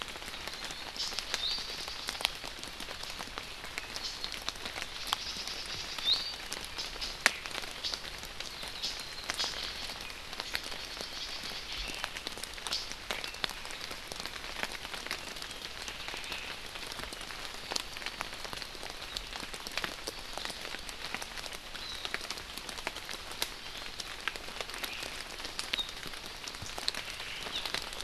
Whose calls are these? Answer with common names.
Iiwi, Hawaii Amakihi